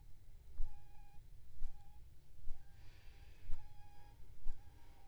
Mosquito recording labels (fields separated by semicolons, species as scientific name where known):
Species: Aedes aegypti; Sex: female; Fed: unfed; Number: one; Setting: cup